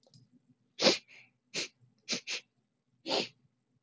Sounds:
Sniff